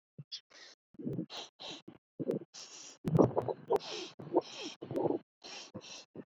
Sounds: Sniff